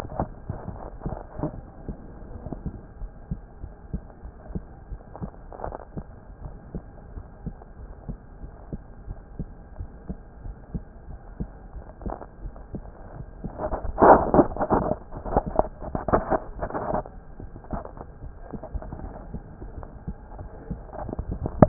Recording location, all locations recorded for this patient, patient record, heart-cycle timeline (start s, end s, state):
aortic valve (AV)
aortic valve (AV)+pulmonary valve (PV)+tricuspid valve (TV)+mitral valve (MV)
#Age: Child
#Sex: Female
#Height: 153.0 cm
#Weight: 37.5 kg
#Pregnancy status: False
#Murmur: Absent
#Murmur locations: nan
#Most audible location: nan
#Systolic murmur timing: nan
#Systolic murmur shape: nan
#Systolic murmur grading: nan
#Systolic murmur pitch: nan
#Systolic murmur quality: nan
#Diastolic murmur timing: nan
#Diastolic murmur shape: nan
#Diastolic murmur grading: nan
#Diastolic murmur pitch: nan
#Diastolic murmur quality: nan
#Outcome: Normal
#Campaign: 2015 screening campaign
0.00	6.37	unannotated
6.37	6.54	S1
6.54	6.74	systole
6.74	6.84	S2
6.84	7.12	diastole
7.12	7.24	S1
7.24	7.44	systole
7.44	7.56	S2
7.56	7.80	diastole
7.80	7.94	S1
7.94	8.06	systole
8.06	8.18	S2
8.18	8.39	diastole
8.39	8.54	S1
8.54	8.69	systole
8.69	8.82	S2
8.82	9.05	diastole
9.05	9.18	S1
9.18	9.36	systole
9.36	9.48	S2
9.48	9.75	diastole
9.75	9.89	S1
9.89	10.05	systole
10.05	10.18	S2
10.18	10.42	diastole
10.42	10.56	S1
10.56	10.72	systole
10.72	10.84	S2
10.84	11.06	diastole
11.06	11.20	S1
11.20	11.38	systole
11.38	11.48	S2
11.48	11.74	diastole
11.74	11.84	S1
11.84	21.68	unannotated